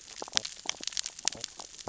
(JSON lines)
{"label": "biophony, sea urchins (Echinidae)", "recorder": "SoundTrap 600 or HydroMoth"}